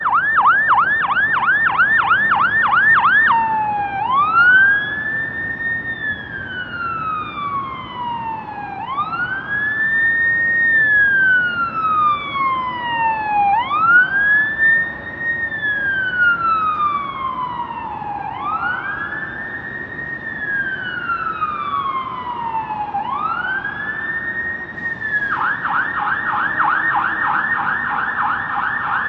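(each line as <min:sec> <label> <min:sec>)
0:00.0 Repeating quick police siren at close distance. 0:03.3
0:03.3 A police siren slowly fades away. 0:25.8
0:25.8 A quick-fire police siren heard from a distance. 0:29.1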